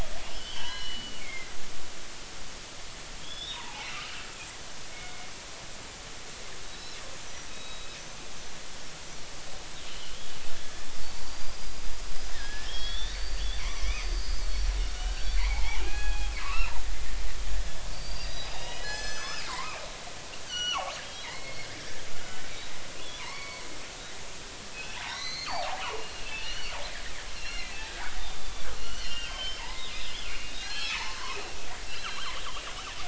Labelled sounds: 0.3	1.9	killer whale, northern resident, G clan, 0.90 to 4.2 kHz
3.2	3.9	killer whale, northern resident, G clan, 0.80 to 3.8 kHz
4.9	5.3	killer whale, northern resident, G clan, 2.1 to 2.3 kHz
6.6	7.0	killer whale, northern resident, G clan, 3.8 to 5.5 kHz
7.2	8.2	killer whale, northern resident, G clan, 2.5 to 6.2 kHz
9.9	10.2	killer whale, northern resident, G clan, 2.8 to 3.3 kHz
11.0	11.9	killer whale, northern resident, G clan, 4.4 to 5.0 kHz
12.3	16.7	killer whale, northern resident, G clan, 0.80 to 6.1 kHz
17.9	19.8	killer whale, northern resident, G clan, 0.93 to 7.8 kHz
20.5	22.5	killer whale, northern resident, G clan, 0.80 to 6.3 kHz
23.2	23.6	killer whale, northern resident, G clan, 0.86 to 4.5 kHz
24.7	26.8	killer whale, northern resident, G clan, 0.80 to 6.5 kHz
27.3	27.8	killer whale, northern resident, G clan, 1.9 to 5.7 kHz
28.4	31.1	killer whale, northern resident, G clan, 0.80 to 6.0 kHz
31.9	32.6	killer whale, northern resident, G clan, 2.6 to 4.2 kHz

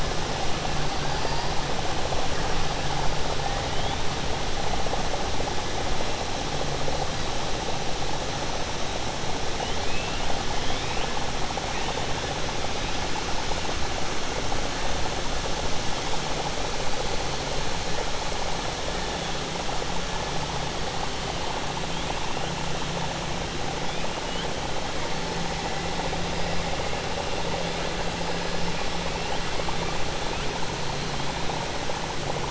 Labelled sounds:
9.6	10.2	killer whale, 2.5 to 3.7 kHz

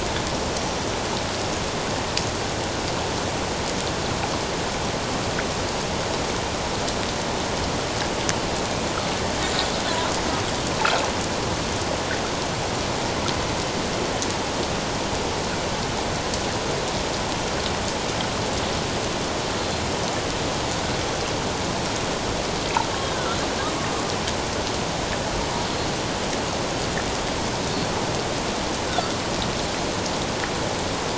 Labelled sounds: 28.9	29.1	killer whale, Bigg's (transient), 1.2 to 1.6 kHz

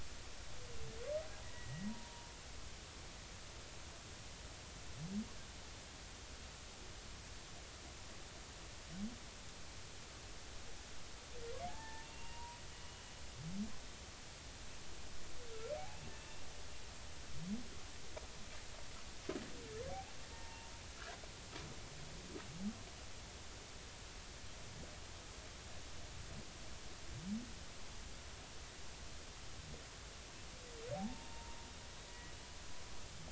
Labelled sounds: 1.5	2.3	humpback whale, 0.86 to 2.0 kHz
11.7	13.0	humpback whale, 0.80 to 2.9 kHz
15.8	16.0	humpback whale, 0.80 to 0.90 kHz
19.9	20.7	humpback whale, 0.80 to 0.96 kHz
30.9	32.3	humpback whale, 0.80 to 2.0 kHz

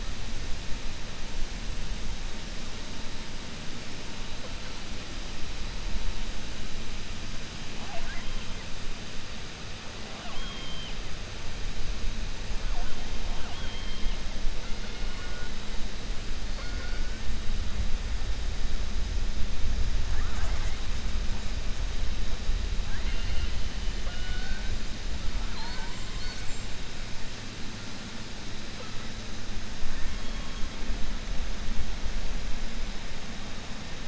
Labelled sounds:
10.0	11.0	killer whale, 0.66 to 3.9 kHz
13.3	14.2	killer whale, 0.69 to 3.4 kHz
16.5	17.1	killer whale, 0.51 to 2.3 kHz
20.0	20.8	killer whale, 0.59 to 2.2 kHz
22.8	23.6	killer whale, 0.81 to 3.1 kHz
24.0	24.7	killer whale, 0.53 to 4.4 kHz
25.4	26.0	killer whale, 0.83 to 2.3 kHz

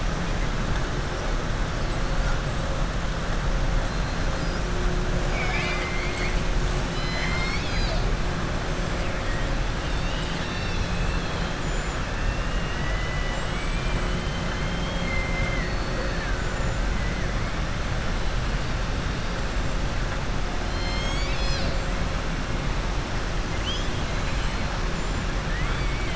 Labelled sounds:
5.2	6.4	killer whale, southern resident, 0.72 to 5.2 kHz
6.8	8.0	killer whale, southern resident, 1.1 to 7.4 kHz
11.5	12.0	killer whale, southern resident, 6.9 to 7.9 kHz

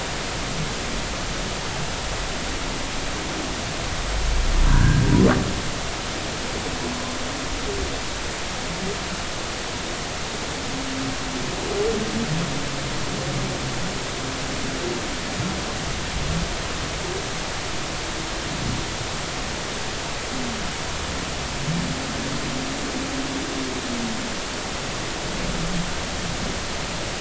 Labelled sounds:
4.7	5.0	humpback whale, 1.4 to 1.7 kHz

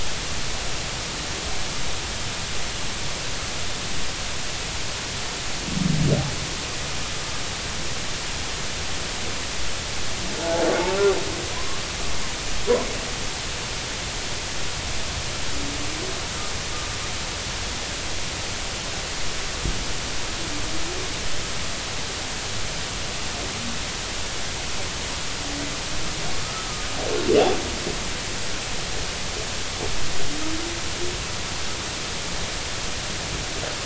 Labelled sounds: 10.4	10.6	humpback whale, 0.80 to 0.90 kHz
11.5	11.8	humpback whale, 0.93 to 1.2 kHz
26.4	26.9	humpback whale, 1.2 to 1.4 kHz

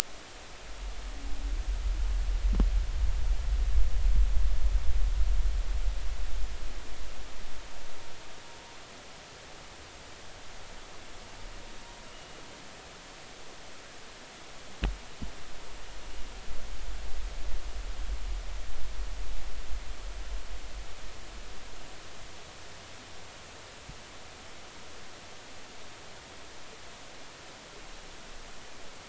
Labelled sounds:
12.1	12.4	humpback whale, 2.8 to 2.9 kHz

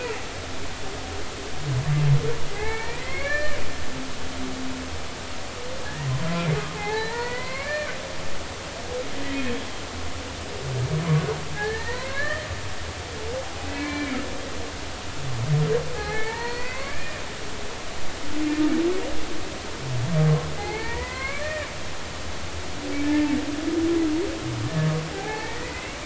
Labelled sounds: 2.5	3.6	humpback whale, 0.80 to 2.6 kHz
5.8	6.1	humpback whale, 1.6 to 2.0 kHz
6.8	7.9	humpback whale, 0.80 to 2.5 kHz
11.5	12.5	humpback whale, 0.86 to 2.3 kHz
13.6	14.2	humpback whale, 1.7 to 2.6 kHz
15.9	17.2	humpback whale, 0.80 to 4.7 kHz
20.5	21.7	humpback whale, 0.80 to 2.5 kHz
25.1	26.0	humpback whale, 0.80 to 2.8 kHz

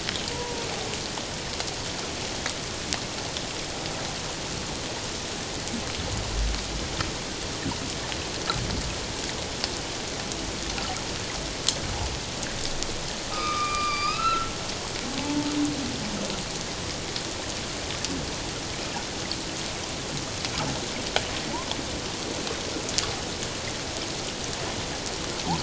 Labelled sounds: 13.3	14.5	humpback whale, 1.1 to 5.2 kHz
15.2	15.5	humpback whale, 0.81 to 0.94 kHz

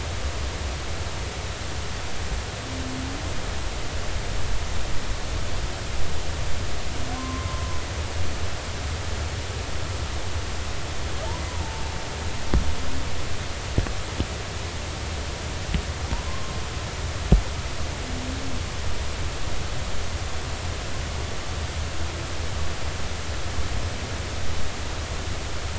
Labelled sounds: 7.1	7.8	humpback whale, 0.93 to 1.1 kHz
11.5	11.8	humpback whale, 0.80 to 1.1 kHz
16.2	16.6	humpback whale, 0.99 to 1.1 kHz

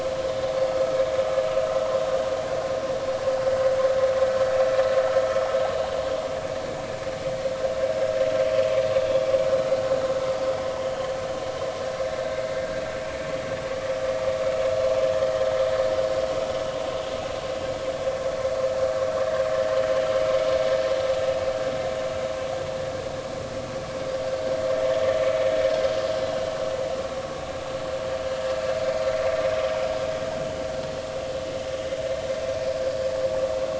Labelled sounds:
0.3	0.6	vessel noise, 3.6 to 3.7 kHz

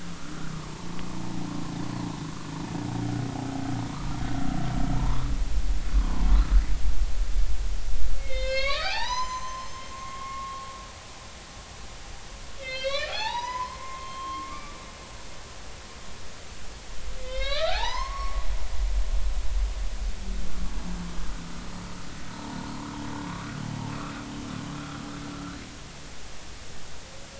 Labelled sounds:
0.0	0.4	humpback whale, 1.1 to 1.5 kHz
5.0	5.2	humpback whale, 0.86 to 1.2 kHz
5.9	6.3	humpback whale, 0.86 to 1.2 kHz
8.2	10.7	humpback whale, 0.80 to 7.3 kHz
12.6	14.8	humpback whale, 0.80 to 6.0 kHz
17.2	18.7	humpback whale, 0.80 to 5.4 kHz
22.3	22.6	humpback whale, 0.83 to 0.99 kHz

